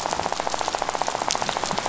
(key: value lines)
label: biophony, rattle
recorder: SoundTrap 500